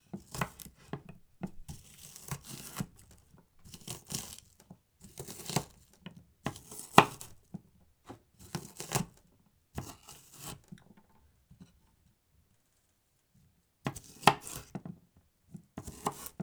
What is the person keep doing?
chopping